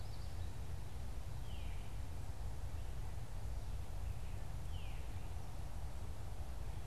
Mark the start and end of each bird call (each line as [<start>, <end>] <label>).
[0.00, 0.62] Common Yellowthroat (Geothlypis trichas)
[0.00, 6.87] Veery (Catharus fuscescens)